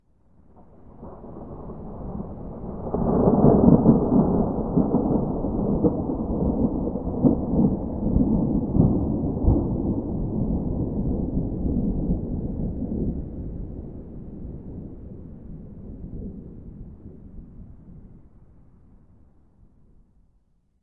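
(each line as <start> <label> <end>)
0.0 Thunder rumbles in the distance, gradually rising and fading away. 18.6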